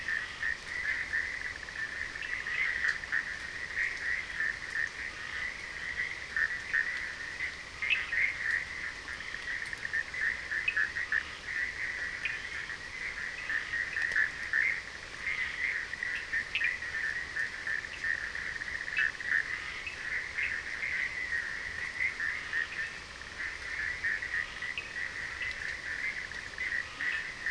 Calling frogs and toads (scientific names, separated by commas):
Boana bischoffi, Scinax perereca, Sphaenorhynchus surdus, Leptodactylus latrans